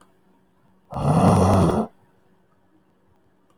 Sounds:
Throat clearing